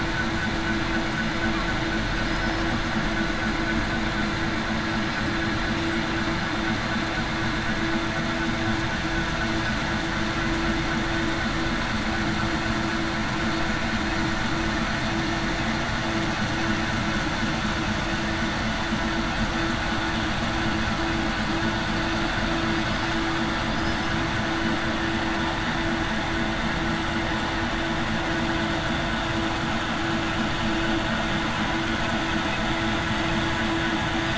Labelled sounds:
23.7	24.1	killer whale, southern resident, 4.9 to 5.2 kHz

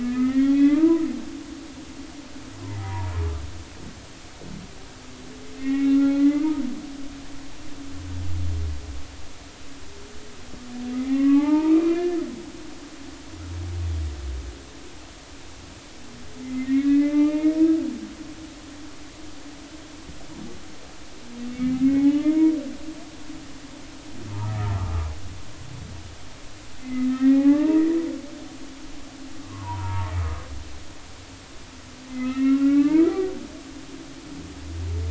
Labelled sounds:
0.0	1.1	humpback whale, 0.90 to 3.6 kHz
2.6	3.1	humpback whale, 0.80 to 1.1 kHz
5.5	6.6	humpback whale, 1.1 to 2.8 kHz
10.9	12.2	humpback whale, 0.80 to 2.5 kHz
16.4	17.6	humpback whale, 0.83 to 3.8 kHz
21.6	22.5	humpback whale, 0.80 to 2.3 kHz
26.8	27.9	humpback whale, 0.80 to 2.7 kHz
29.4	30.4	humpback whale, 0.83 to 1.4 kHz
32.1	33.3	humpback whale, 1.1 to 2.8 kHz

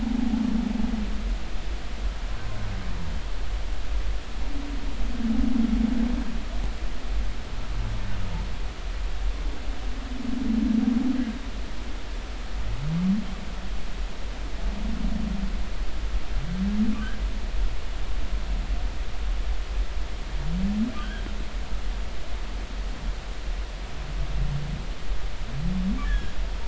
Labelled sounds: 0.0	0.3	humpback whale, 0.80 to 0.90 kHz
21.0	21.2	humpback whale, 1.4 to 1.7 kHz
26.0	26.3	humpback whale, 1.6 to 3.6 kHz

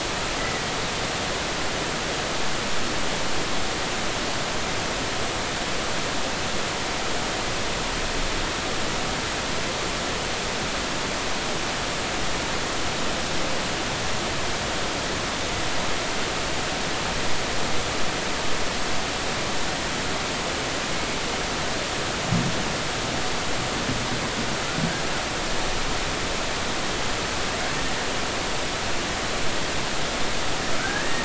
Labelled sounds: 0.4	0.7	killer whale, Bigg's (transient), 1.9 to 2.0 kHz
30.8	31.2	killer whale, Bigg's (transient), 1.4 to 1.9 kHz

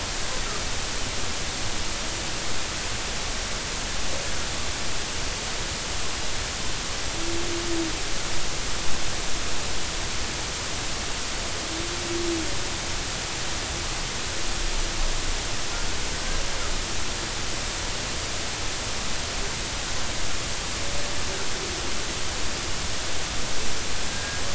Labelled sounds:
24.1	24.4	killer whale, 1.6 to 1.7 kHz

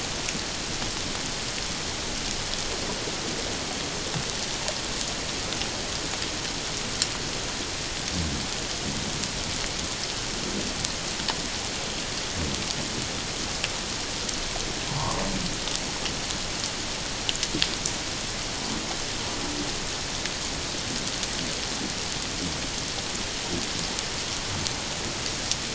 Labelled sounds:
14.9	15.2	humpback whale, 0.84 to 1.2 kHz

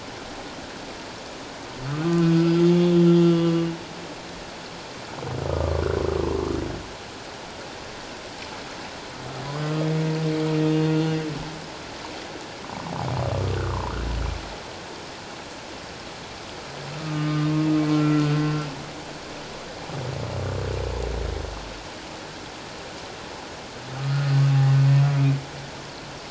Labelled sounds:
1.8	3.5	humpback whale, 1.1 to 3.5 kHz
5.5	6.5	humpback whale, 0.88 to 1.3 kHz
9.4	9.9	humpback whale, 0.97 to 4.9 kHz
13.6	13.9	humpback whale, 0.84 to 1.6 kHz
17.0	18.3	humpback whale, 1.2 to 1.4 kHz
24.0	24.4	humpback whale, 1.2 to 1.3 kHz

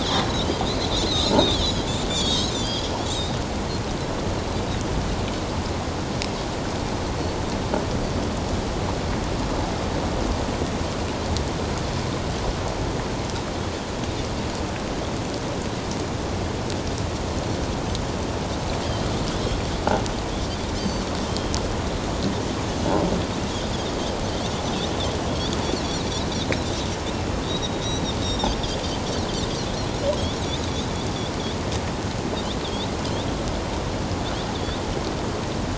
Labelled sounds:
0.6	3.3	Pacific white-sided dolphin, 2.9 to 7.2 kHz
20.7	21.5	Pacific white-sided dolphin, 3.0 to 6.4 kHz
25.3	25.5	Pacific white-sided dolphin, 3.2 to 3.8 kHz
27.1	28.6	Pacific white-sided dolphin, 3.1 to 6.0 kHz
32.6	32.9	Pacific white-sided dolphin, 3.2 to 3.9 kHz
34.5	34.8	Pacific white-sided dolphin, 3.3 to 3.9 kHz

